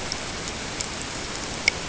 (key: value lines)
label: ambient
recorder: HydroMoth